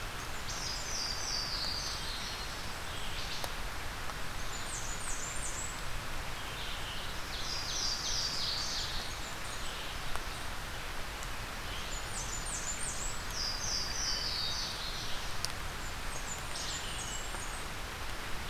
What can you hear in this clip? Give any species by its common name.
Blackburnian Warbler, Louisiana Waterthrush, Wood Thrush, Red-eyed Vireo, Hermit Thrush